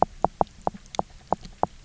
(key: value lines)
label: biophony, knock
recorder: SoundTrap 300